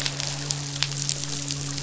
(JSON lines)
{"label": "biophony, midshipman", "recorder": "SoundTrap 500"}